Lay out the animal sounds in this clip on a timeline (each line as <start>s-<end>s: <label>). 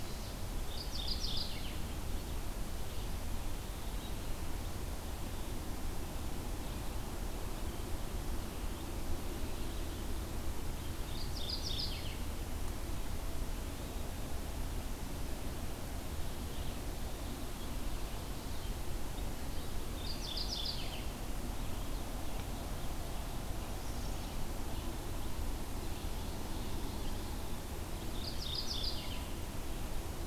0.0s-1.8s: Red-eyed Vireo (Vireo olivaceus)
0.5s-1.9s: Mourning Warbler (Geothlypis philadelphia)
2.1s-30.3s: Red-eyed Vireo (Vireo olivaceus)
10.9s-12.4s: Mourning Warbler (Geothlypis philadelphia)
19.8s-21.1s: Mourning Warbler (Geothlypis philadelphia)
27.9s-29.3s: Mourning Warbler (Geothlypis philadelphia)